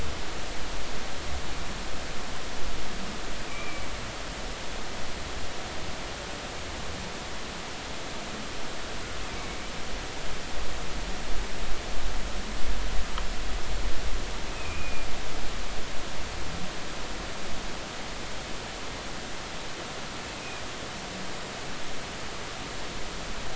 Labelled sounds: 3.5	3.9	humpback whale, 2.2 to 2.5 kHz
9.3	9.7	humpback whale, 2.2 to 2.4 kHz
14.5	15.1	humpback whale, 2.3 to 2.6 kHz
20.4	20.6	humpback whale, 2.4 to 2.6 kHz

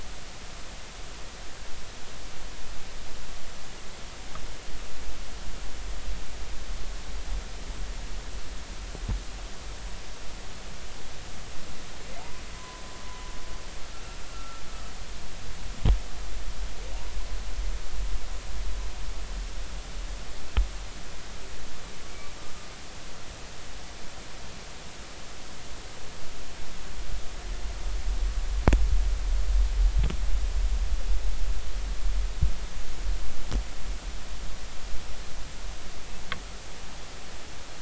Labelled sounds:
12.6	12.8	humpback whale, 0.96 to 1.1 kHz
14.3	14.6	humpback whale, 1.3 to 1.5 kHz

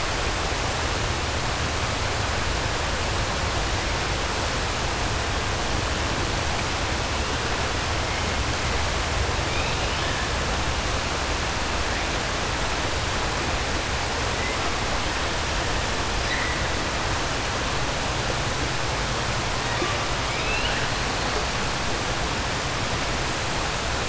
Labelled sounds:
20.2	20.9	killer whale, 1.5 to 4.2 kHz

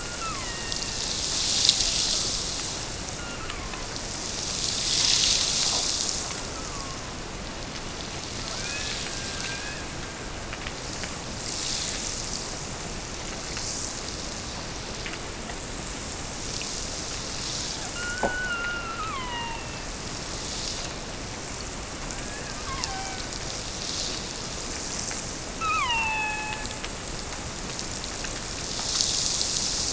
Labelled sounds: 0.0	1.3	killer whale, Bigg's (transient), Gulf of Alaska transient, 0.71 to 4.3 kHz
3.1	4.0	killer whale, Bigg's (transient), Gulf of Alaska transient, 0.84 to 2.9 kHz
6.3	7.3	killer whale, Bigg's (transient), Gulf of Alaska transient, 0.80 to 1.5 kHz
8.5	10.6	killer whale, Bigg's (transient), Gulf of Alaska transient, 1.1 to 2.6 kHz
17.9	20.0	killer whale, Bigg's (transient), Gulf of Alaska transient, 0.73 to 4.3 kHz
22.1	23.6	killer whale, Bigg's (transient), Gulf of Alaska transient, 0.52 to 3.7 kHz
25.5	26.9	killer whale, Bigg's (transient), Gulf of Alaska transient, 0.71 to 4.6 kHz

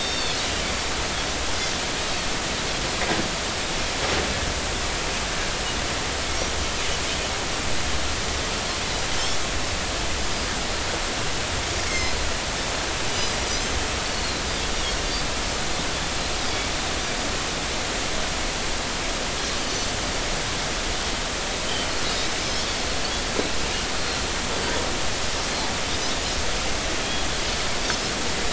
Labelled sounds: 0.0	0.4	Pacific white-sided dolphin, 3.3 to 4.6 kHz
11.9	12.2	Pacific white-sided dolphin, 1.9 to 6.4 kHz
13.4	13.8	Pacific white-sided dolphin, 5.8 to 6.4 kHz
14.1	14.4	Pacific white-sided dolphin, 4.0 to 4.4 kHz
19.6	19.9	Pacific white-sided dolphin, 4.4 to 4.7 kHz
21.7	22.6	Pacific white-sided dolphin, 3.0 to 5.3 kHz

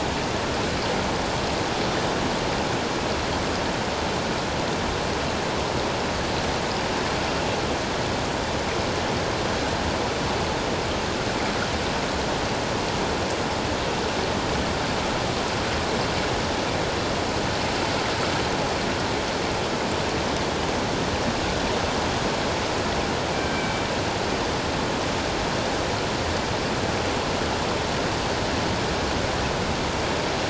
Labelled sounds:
23.4	23.8	killer whale, northern resident, G clan, 1.5 to 2.4 kHz

